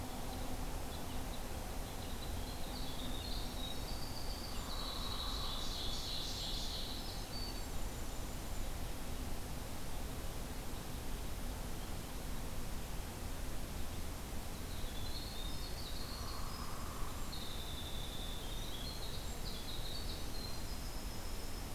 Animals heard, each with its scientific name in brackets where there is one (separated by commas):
Ovenbird (Seiurus aurocapilla), Red Crossbill (Loxia curvirostra), Hairy Woodpecker (Dryobates villosus), Winter Wren (Troglodytes hiemalis)